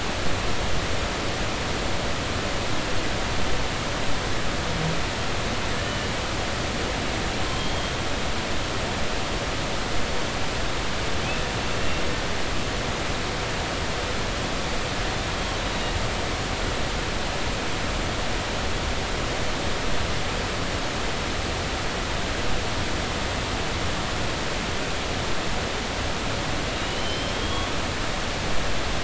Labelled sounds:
7.5	7.9	humpback whale, 3.1 to 3.3 kHz
15.6	15.9	humpback whale, 3.7 to 4.0 kHz
26.8	27.7	humpback whale, 2.8 to 5.3 kHz

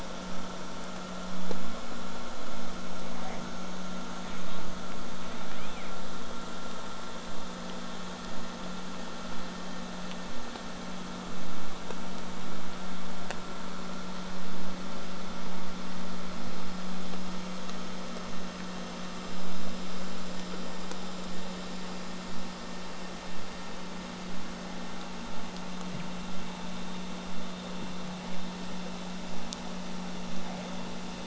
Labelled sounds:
4.0	4.6	killer whale, southern resident, J pod, 1.9 to 4.0 kHz
5.2	5.9	killer whale, southern resident, J pod, 0.96 to 4.1 kHz
21.3	26.3	vessel noise, 0 to 8.0 kHz

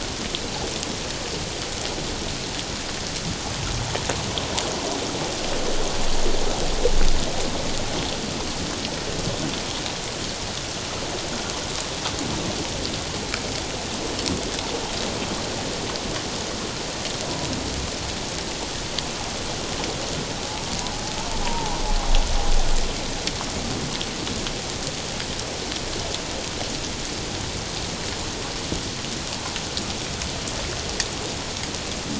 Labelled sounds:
21.4	21.8	humpback whale, 0.78 to 1.0 kHz

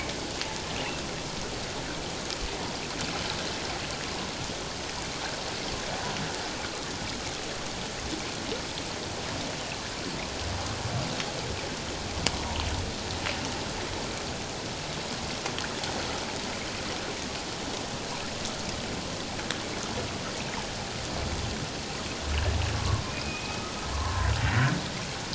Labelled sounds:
22.7	23.6	humpback whale, 1.0 to 2.6 kHz
23.9	24.3	humpback whale, 0.94 to 1.2 kHz

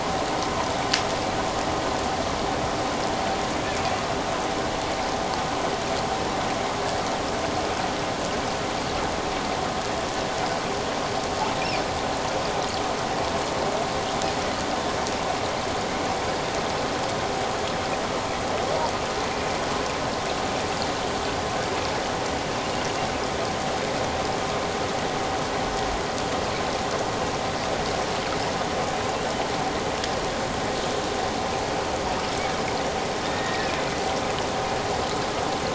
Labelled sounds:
33.2	33.7	killer whale, offshore, 1.7 to 3.8 kHz

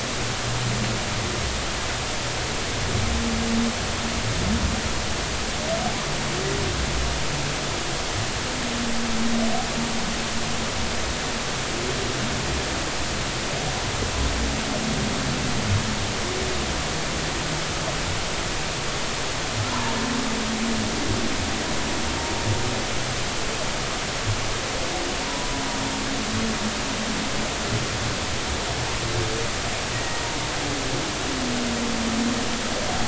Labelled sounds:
25.2	25.6	humpback whale, 0.90 to 1.0 kHz
29.9	30.2	humpback whale, 1.8 to 2.0 kHz

